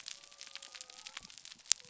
{"label": "biophony", "recorder": "SoundTrap 300"}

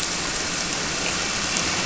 {"label": "anthrophony, boat engine", "recorder": "SoundTrap 300"}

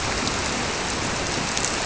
{"label": "biophony", "recorder": "SoundTrap 300"}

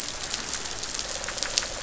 {"label": "biophony", "recorder": "SoundTrap 500"}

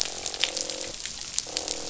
{"label": "biophony, croak", "recorder": "SoundTrap 500"}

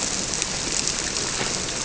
{"label": "biophony", "recorder": "SoundTrap 300"}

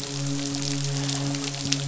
{"label": "biophony, midshipman", "recorder": "SoundTrap 500"}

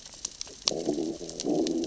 {"label": "biophony, growl", "recorder": "SoundTrap 600 or HydroMoth"}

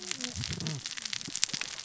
{"label": "biophony, cascading saw", "recorder": "SoundTrap 600 or HydroMoth"}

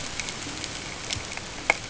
{"label": "ambient", "recorder": "HydroMoth"}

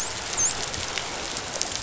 {"label": "biophony, dolphin", "recorder": "SoundTrap 500"}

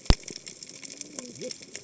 {"label": "biophony, cascading saw", "recorder": "HydroMoth"}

